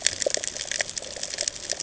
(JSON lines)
{"label": "ambient", "recorder": "HydroMoth"}